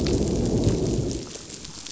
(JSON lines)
{"label": "biophony, growl", "recorder": "SoundTrap 500"}